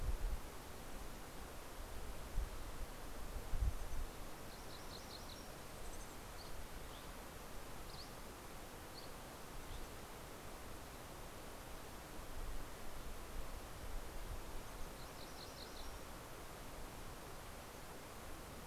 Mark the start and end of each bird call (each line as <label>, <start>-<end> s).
MacGillivray's Warbler (Geothlypis tolmiei), 3.7-5.8 s
Mountain Chickadee (Poecile gambeli), 5.1-6.5 s
Dusky Flycatcher (Empidonax oberholseri), 5.9-10.2 s
MacGillivray's Warbler (Geothlypis tolmiei), 14.0-16.6 s